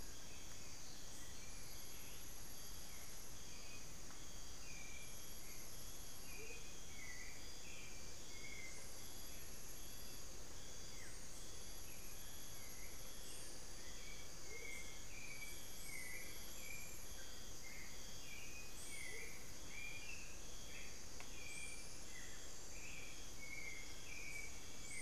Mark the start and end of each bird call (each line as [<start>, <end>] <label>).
[0.00, 25.02] Hauxwell's Thrush (Turdus hauxwelli)
[6.29, 6.69] Amazonian Motmot (Momotus momota)
[10.79, 11.29] Buff-throated Woodcreeper (Xiphorhynchus guttatus)
[14.39, 19.39] Amazonian Motmot (Momotus momota)